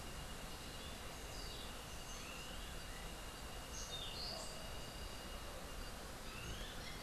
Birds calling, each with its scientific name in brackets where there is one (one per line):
Clay-colored Thrush (Turdus grayi)